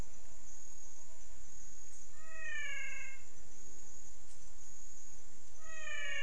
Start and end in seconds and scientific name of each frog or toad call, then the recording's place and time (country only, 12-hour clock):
2.1	3.3	Physalaemus albonotatus
Brazil, 6:00pm